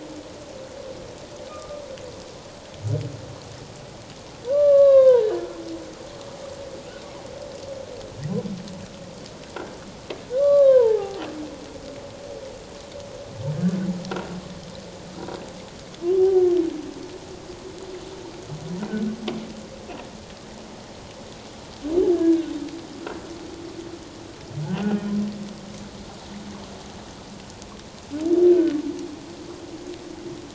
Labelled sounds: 1.5	1.8	humpback whale, 1.2 to 1.3 kHz
4.5	5.3	humpback whale, 0.81 to 4.0 kHz
10.4	11.3	humpback whale, 0.78 to 4.1 kHz
14.1	14.4	humpback whale, 1.3 to 1.6 kHz
18.9	19.1	humpback whale, 1.4 to 1.6 kHz
22.1	22.5	humpback whale, 1.4 to 1.8 kHz
24.8	25.1	humpback whale, 2.4 to 3.1 kHz

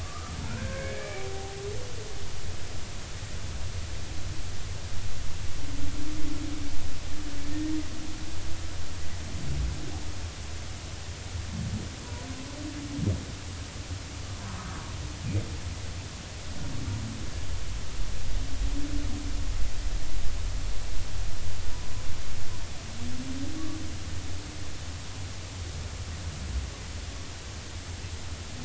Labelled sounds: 0.0	1.6	humpback whale, 0.80 to 2.4 kHz

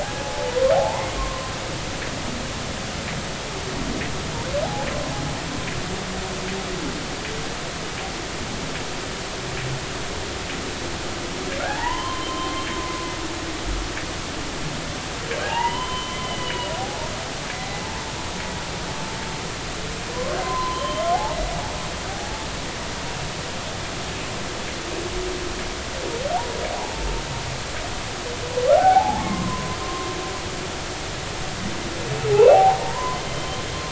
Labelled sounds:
0.0	1.5	humpback whale, 0.80 to 1.1 kHz
11.7	12.7	humpback whale, 0.80 to 3.2 kHz
15.4	17.8	humpback whale, 0.80 to 4.1 kHz
20.1	21.0	humpback whale, 0.96 to 3.2 kHz
26.8	27.1	humpback whale, 0.80 to 1.0 kHz
28.7	30.1	humpback whale, 0.80 to 1.1 kHz
32.3	33.6	humpback whale, 0.80 to 3.2 kHz

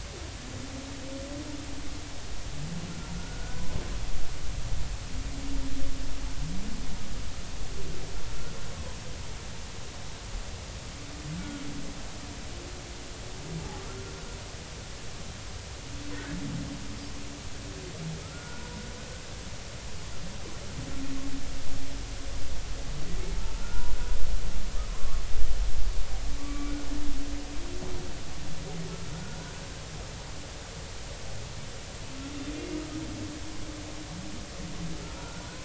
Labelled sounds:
3.2	3.8	humpback whale, 0.96 to 1.6 kHz
18.2	18.7	humpback whale, 1.2 to 1.5 kHz
23.4	23.9	humpback whale, 1.3 to 1.5 kHz
24.9	25.2	humpback whale, 0.96 to 1.2 kHz
26.4	26.7	humpback whale, 1.1 to 2.4 kHz
29.1	29.6	humpback whale, 1.3 to 1.6 kHz
35.2	35.4	humpback whale, 1.3 to 1.5 kHz

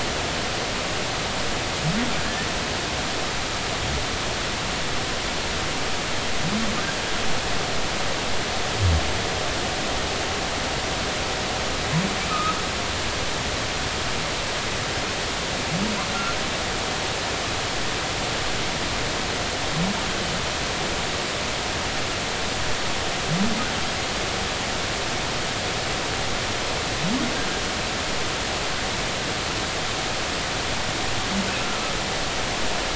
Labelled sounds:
12.3	12.6	humpback whale, 1.2 to 1.4 kHz

